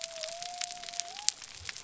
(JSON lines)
{"label": "biophony", "recorder": "SoundTrap 300"}